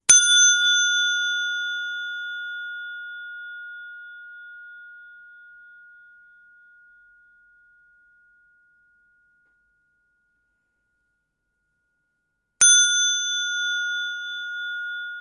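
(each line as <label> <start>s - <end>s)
A bell rings softly. 0.1s - 15.2s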